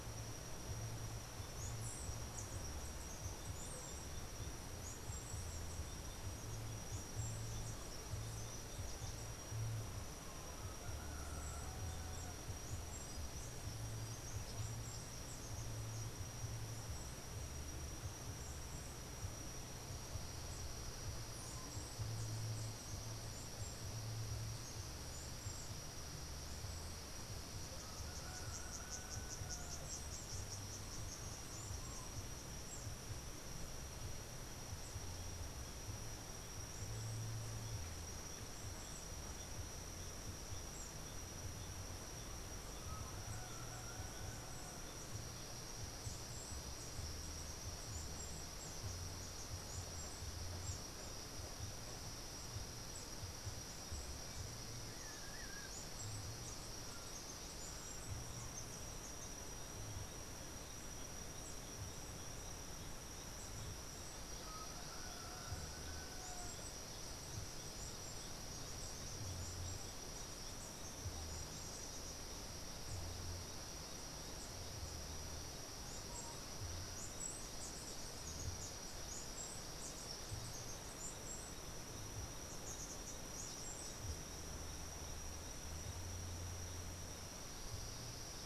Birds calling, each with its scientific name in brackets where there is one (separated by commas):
Andean Emerald (Uranomitra franciae)